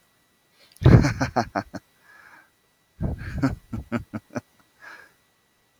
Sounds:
Laughter